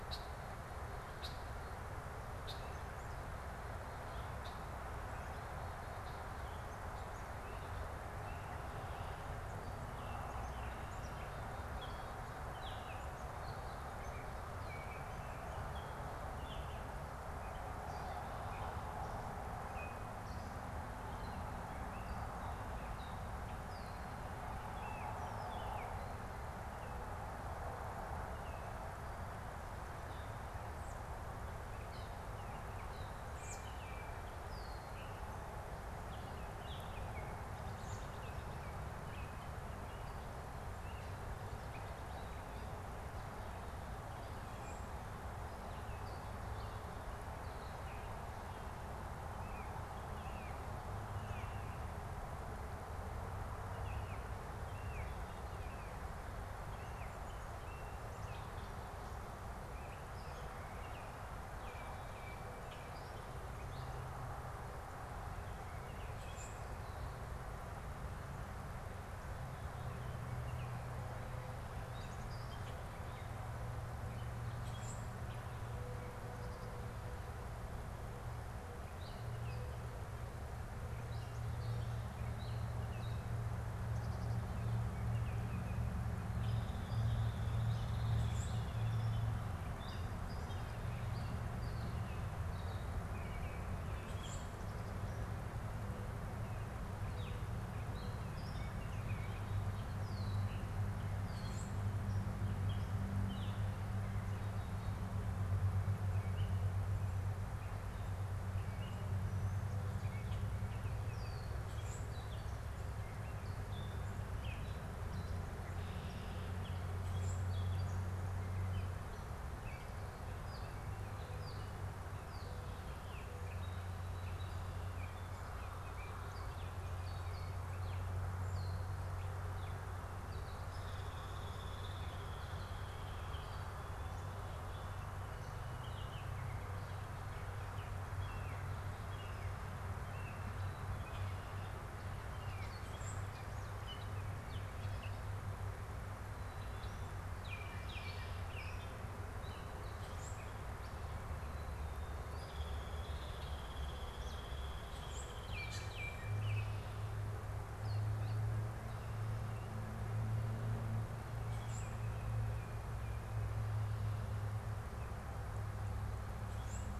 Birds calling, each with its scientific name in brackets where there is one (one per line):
Common Grackle (Quiscalus quiscula)
Baltimore Oriole (Icterus galbula)
Gray Catbird (Dumetella carolinensis)
Red-winged Blackbird (Agelaius phoeniceus)
American Robin (Turdus migratorius)
Hairy Woodpecker (Dryobates villosus)
Mourning Dove (Zenaida macroura)